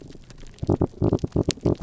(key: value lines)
label: biophony
recorder: SoundTrap 300